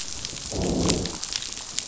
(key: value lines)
label: biophony, growl
recorder: SoundTrap 500